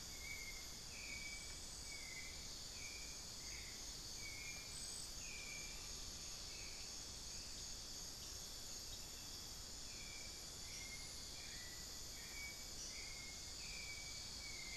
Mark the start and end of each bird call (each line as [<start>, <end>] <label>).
[0.00, 14.77] Hauxwell's Thrush (Turdus hauxwelli)
[0.00, 14.77] unidentified bird
[4.36, 6.75] Amazonian Pygmy-Owl (Glaucidium hardyi)